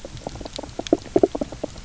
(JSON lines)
{"label": "biophony, knock croak", "recorder": "SoundTrap 300"}